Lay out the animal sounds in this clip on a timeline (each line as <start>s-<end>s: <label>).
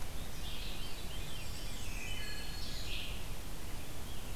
0.0s-4.4s: Red-eyed Vireo (Vireo olivaceus)
0.1s-2.3s: Veery (Catharus fuscescens)
1.0s-2.7s: Black-and-white Warbler (Mniotilta varia)
1.2s-2.9s: Black-throated Green Warbler (Setophaga virens)
1.6s-2.8s: Wood Thrush (Hylocichla mustelina)